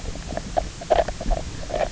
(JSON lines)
{"label": "biophony, knock croak", "recorder": "SoundTrap 300"}